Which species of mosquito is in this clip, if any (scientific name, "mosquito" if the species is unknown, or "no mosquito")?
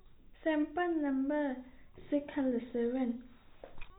no mosquito